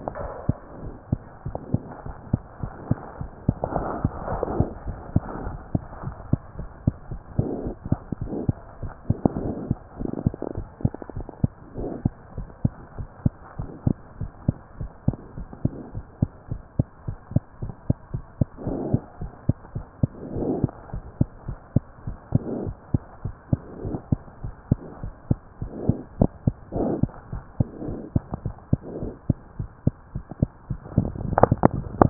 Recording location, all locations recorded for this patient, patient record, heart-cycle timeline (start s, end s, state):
mitral valve (MV)
aortic valve (AV)+pulmonary valve (PV)+tricuspid valve (TV)+mitral valve (MV)
#Age: Child
#Sex: Female
#Height: 99.0 cm
#Weight: 17.2 kg
#Pregnancy status: False
#Murmur: Absent
#Murmur locations: nan
#Most audible location: nan
#Systolic murmur timing: nan
#Systolic murmur shape: nan
#Systolic murmur grading: nan
#Systolic murmur pitch: nan
#Systolic murmur quality: nan
#Diastolic murmur timing: nan
#Diastolic murmur shape: nan
#Diastolic murmur grading: nan
#Diastolic murmur pitch: nan
#Diastolic murmur quality: nan
#Outcome: Abnormal
#Campaign: 2015 screening campaign
0.00	12.36	unannotated
12.36	12.48	S1
12.48	12.60	systole
12.60	12.74	S2
12.74	12.94	diastole
12.94	13.08	S1
13.08	13.22	systole
13.22	13.36	S2
13.36	13.56	diastole
13.56	13.70	S1
13.70	13.83	systole
13.83	14.00	S2
14.00	14.17	diastole
14.17	14.30	S1
14.30	14.44	systole
14.44	14.58	S2
14.58	14.77	diastole
14.77	14.90	S1
14.90	15.04	systole
15.04	15.16	S2
15.16	15.34	diastole
15.34	15.48	S1
15.48	15.60	systole
15.60	15.72	S2
15.72	15.90	diastole
15.90	16.04	S1
16.04	16.18	systole
16.18	16.32	S2
16.32	16.47	diastole
16.47	16.60	S1
16.60	16.75	systole
16.75	16.86	S2
16.86	17.03	diastole
17.03	17.18	S1
17.18	17.32	systole
17.32	17.46	S2
17.46	17.59	diastole
17.59	17.74	S1
17.74	17.86	systole
17.86	17.98	S2
17.98	18.10	diastole
18.10	18.24	S1
18.24	18.38	systole
18.38	18.48	S2
18.48	18.64	diastole
18.64	18.75	S1
18.75	18.90	systole
18.90	19.02	S2
19.02	19.18	diastole
19.18	19.30	S1
19.30	19.45	systole
19.45	19.58	S2
19.58	19.71	diastole
19.71	19.86	S1
19.86	19.99	systole
19.99	20.12	S2
20.12	20.34	diastole
20.34	20.47	S1
20.47	20.62	systole
20.62	20.74	S2
20.74	20.90	diastole
20.90	21.04	S1
21.04	21.16	systole
21.16	21.30	S2
21.30	21.44	diastole
21.44	21.58	S1
21.58	21.72	systole
21.72	21.86	S2
21.86	22.03	diastole
22.03	22.16	S1
22.16	32.10	unannotated